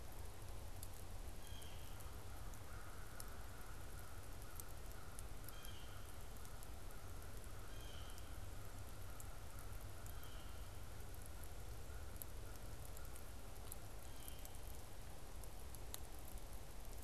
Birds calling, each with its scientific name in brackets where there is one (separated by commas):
American Crow (Corvus brachyrhynchos), Blue Jay (Cyanocitta cristata)